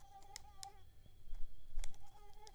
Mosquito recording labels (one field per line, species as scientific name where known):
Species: Mansonia uniformis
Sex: female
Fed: unfed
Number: one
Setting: cup